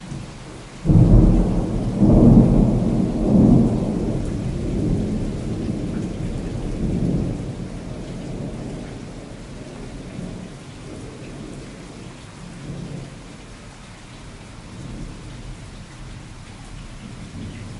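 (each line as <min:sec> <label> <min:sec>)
0:00.0 Rainwater dripping steadily. 0:17.8
0:00.8 Thunder rumbles loudly and then gradually fades away. 0:17.8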